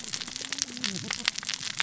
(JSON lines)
{"label": "biophony, cascading saw", "recorder": "SoundTrap 600 or HydroMoth"}